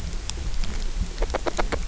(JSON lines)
{"label": "biophony, grazing", "recorder": "SoundTrap 300"}